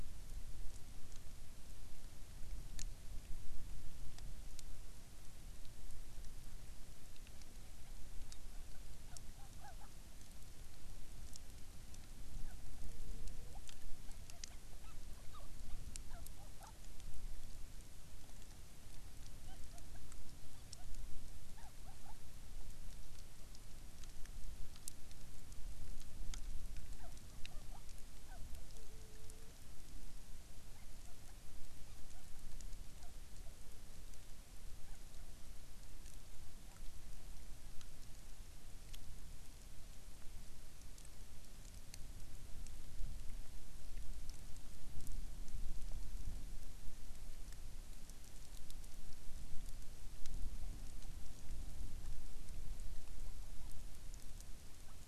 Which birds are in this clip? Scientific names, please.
Pterodroma sandwichensis